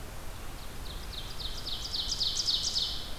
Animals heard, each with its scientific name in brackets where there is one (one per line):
Ovenbird (Seiurus aurocapilla)